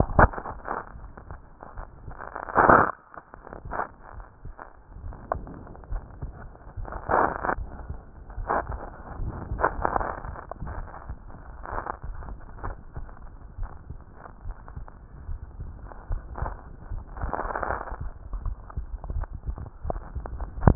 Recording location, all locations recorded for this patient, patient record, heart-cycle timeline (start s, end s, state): aortic valve (AV)
aortic valve (AV)+pulmonary valve (PV)+tricuspid valve (TV)+mitral valve (MV)
#Age: Child
#Sex: Male
#Height: 147.0 cm
#Weight: 31.4 kg
#Pregnancy status: False
#Murmur: Absent
#Murmur locations: nan
#Most audible location: nan
#Systolic murmur timing: nan
#Systolic murmur shape: nan
#Systolic murmur grading: nan
#Systolic murmur pitch: nan
#Systolic murmur quality: nan
#Diastolic murmur timing: nan
#Diastolic murmur shape: nan
#Diastolic murmur grading: nan
#Diastolic murmur pitch: nan
#Diastolic murmur quality: nan
#Outcome: Normal
#Campaign: 2015 screening campaign
0.00	12.60	unannotated
12.60	12.76	S1
12.76	12.98	systole
12.98	13.10	S2
13.10	13.58	diastole
13.58	13.70	S1
13.70	13.90	systole
13.90	14.02	S2
14.02	14.44	diastole
14.44	14.56	S1
14.56	14.78	systole
14.78	14.88	S2
14.88	15.26	diastole
15.26	15.40	S1
15.40	15.58	systole
15.58	15.70	S2
15.70	16.08	diastole
16.08	16.22	S1
16.22	16.40	systole
16.40	16.56	S2
16.56	16.92	diastole
16.92	17.04	S1
17.04	17.20	systole
17.20	17.34	S2
17.34	17.70	diastole
17.70	17.82	S1
17.82	18.00	systole
18.00	18.12	S2
18.12	18.44	diastole
18.44	18.58	S1
18.58	18.74	systole
18.74	18.86	S2
18.86	19.16	diastole
19.16	19.28	S1
19.28	19.46	systole
19.46	19.56	S2
19.56	19.86	diastole
19.86	20.02	S1
20.02	20.14	systole
20.14	20.26	S2
20.26	20.75	unannotated